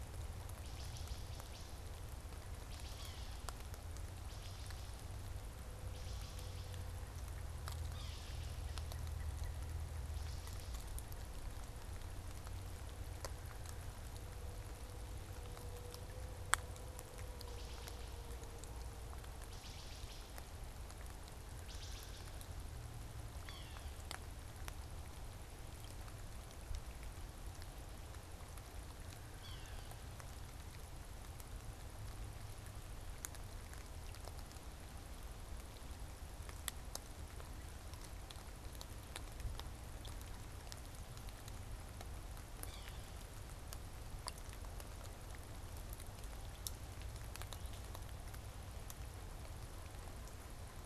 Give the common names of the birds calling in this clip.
Wood Thrush, Yellow-bellied Sapsucker